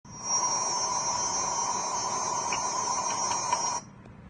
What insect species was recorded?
Psaltoda plaga